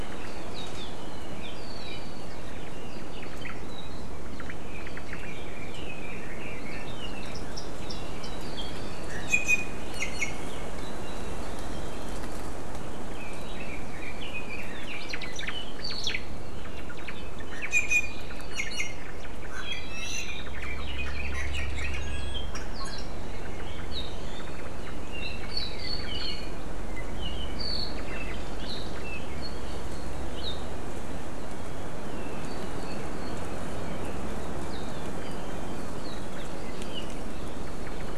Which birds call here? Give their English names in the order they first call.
Omao, Red-billed Leiothrix, Iiwi